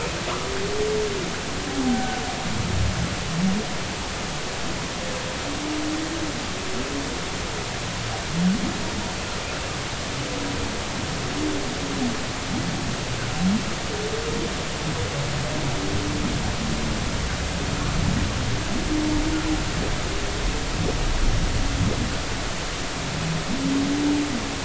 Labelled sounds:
1.9	2.2	humpback whale, 1.4 to 1.6 kHz
9.5	9.7	humpback whale, 2.6 to 2.8 kHz

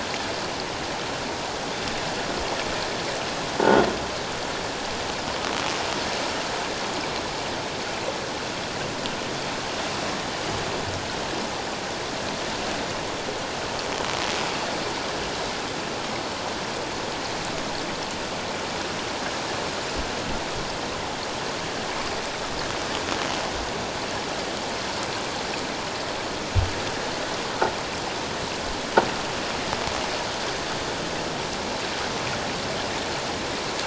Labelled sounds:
3.6	3.9	croaking sound likely from a nearby submerged object, 1.4 to 1.5 kHz

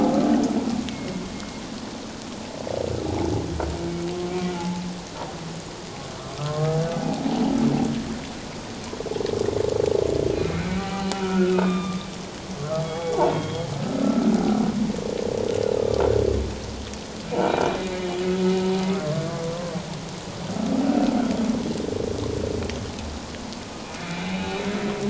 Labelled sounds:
4.5	4.8	humpback whale, 0.81 to 0.94 kHz
10.6	12.0	humpback whale, 0.78 to 3.8 kHz
12.8	13.7	humpback whale, 0.78 to 3.4 kHz
14.0	14.3	humpback whale, 1.2 to 1.4 kHz
15.8	16.0	humpback whale, 1.1 to 1.3 kHz
17.4	17.8	humpback whale, 2.3 to 2.5 kHz
18.9	19.2	humpback whale, 1.0 to 1.2 kHz
24.0	24.7	humpback whale, 2.3 to 2.7 kHz

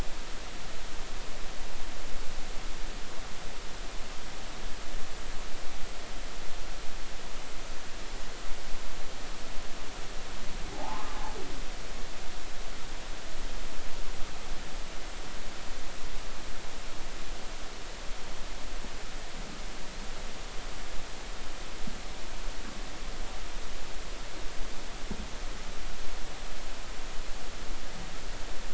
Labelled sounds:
10.7	11.1	humpback whale, 0.80 to 1.2 kHz

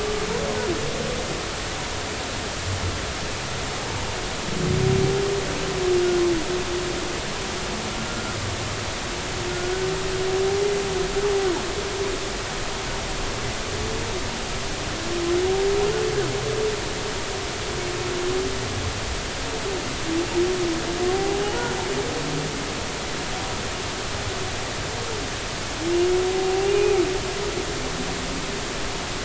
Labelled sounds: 8.0	8.4	humpback whale, 1.3 to 1.5 kHz
21.1	21.7	humpback whale, 0.80 to 0.99 kHz
26.7	27.0	humpback whale, 2.4 to 2.6 kHz

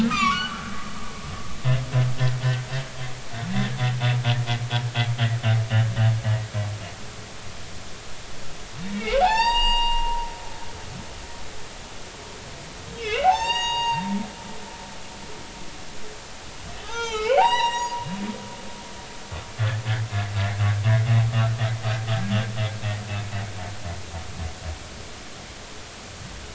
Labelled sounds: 0.1	0.7	humpback whale, 0.99 to 6.3 kHz
8.9	10.2	humpback whale, 0.80 to 7.6 kHz
13.0	14.1	humpback whale, 0.80 to 7.6 kHz
16.8	18.2	humpback whale, 0.80 to 7.7 kHz
19.6	19.8	humpback whale, 1.6 to 1.9 kHz

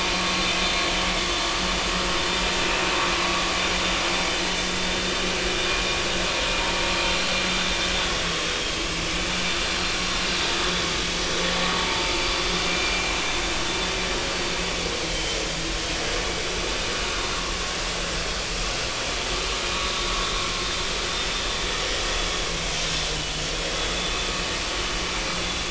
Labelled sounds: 12.7	13.1	vessel noise, 2.3 to 2.5 kHz
15.0	15.4	vessel noise, 3.0 to 3.2 kHz

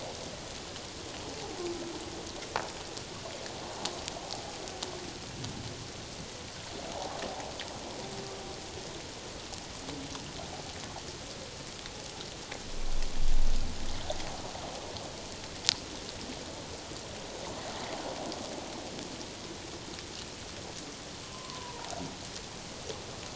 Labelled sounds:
21.2	22.0	humpback whale, 0.78 to 1.2 kHz

